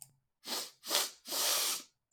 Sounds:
Sniff